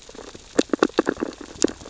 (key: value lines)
label: biophony, sea urchins (Echinidae)
recorder: SoundTrap 600 or HydroMoth